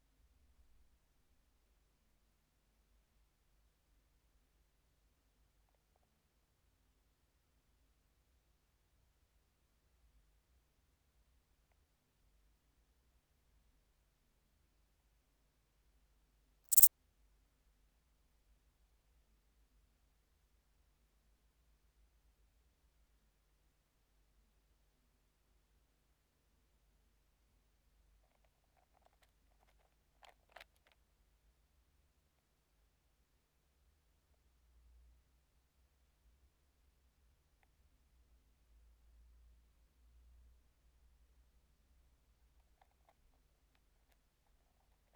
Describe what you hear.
Pholidoptera femorata, an orthopteran